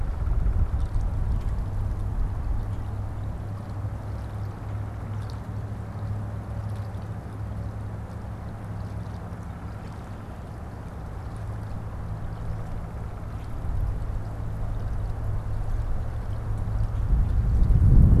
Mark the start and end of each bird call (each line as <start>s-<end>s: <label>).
4.5s-5.2s: Downy Woodpecker (Dryobates pubescens)
12.1s-13.5s: Downy Woodpecker (Dryobates pubescens)